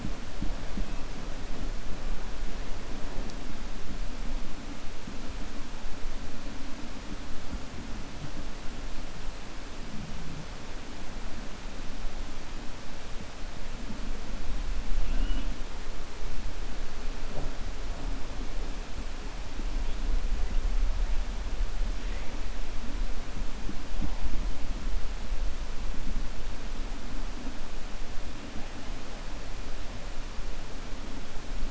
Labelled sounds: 15.0	15.5	killer whale, 2.5 to 3.4 kHz

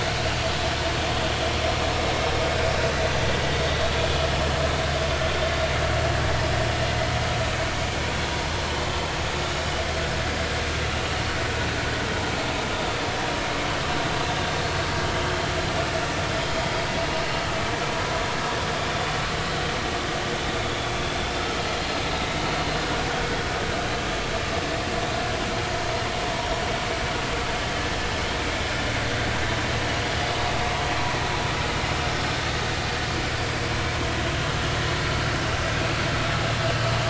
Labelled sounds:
20.6	20.9	vessel noise, 3.3 to 3.5 kHz

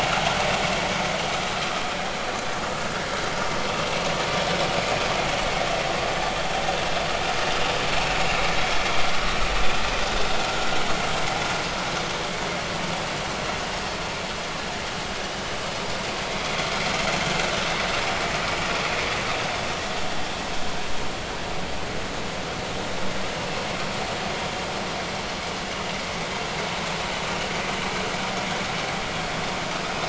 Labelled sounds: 4.4	4.7	vessel noise, 5.2 to 5.4 kHz

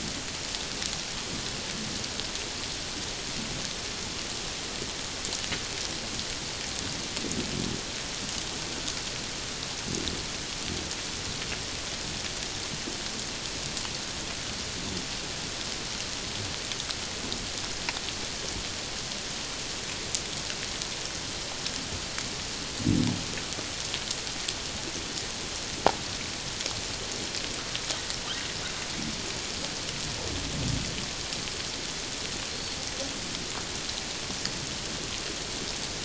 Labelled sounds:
32.5	32.8	humpback whale, 4.2 to 4.5 kHz

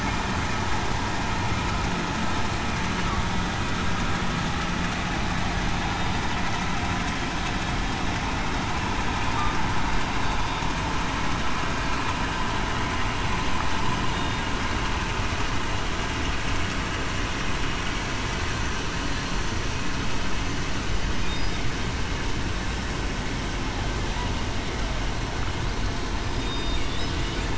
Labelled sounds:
26.4	26.8	killer whale, southern resident, 3.6 to 3.8 kHz

